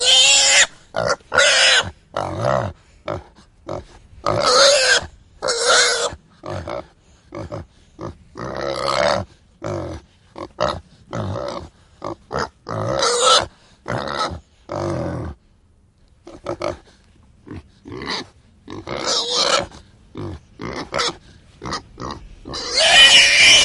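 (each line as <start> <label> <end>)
0.0 A pig screams loudly. 0.7
0.9 A pig oinks. 1.2
1.3 A pig screams. 1.9
2.1 A pig oinks repeatedly. 3.9
4.2 A pig screams twice. 6.3
6.4 A pig oinks with an inconsistent pattern and varying volumes. 12.5
12.7 A pig screams. 13.6
13.9 A pig grunts twice. 15.4
16.3 A pig oinks in an inconsistent pattern and varying volumes. 22.4
22.5 A pig screams. 23.6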